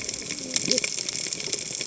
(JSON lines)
{"label": "biophony, cascading saw", "recorder": "HydroMoth"}